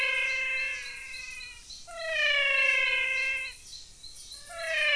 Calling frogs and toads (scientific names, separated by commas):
Adenomera diptyx, Physalaemus albonotatus